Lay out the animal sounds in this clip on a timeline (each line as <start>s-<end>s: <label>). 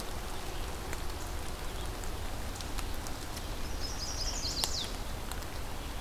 3.4s-5.1s: Chestnut-sided Warbler (Setophaga pensylvanica)